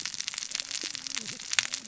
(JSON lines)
{"label": "biophony, cascading saw", "recorder": "SoundTrap 600 or HydroMoth"}